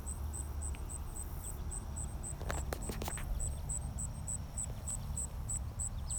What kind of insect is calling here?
orthopteran